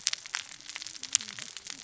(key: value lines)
label: biophony, cascading saw
recorder: SoundTrap 600 or HydroMoth